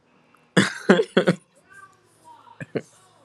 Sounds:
Laughter